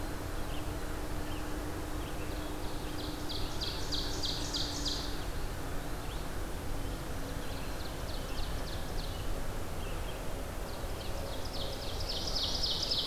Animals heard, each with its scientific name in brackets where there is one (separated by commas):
Ovenbird (Seiurus aurocapilla), Red-eyed Vireo (Vireo olivaceus), Black-throated Green Warbler (Setophaga virens)